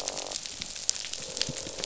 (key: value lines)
label: biophony, croak
recorder: SoundTrap 500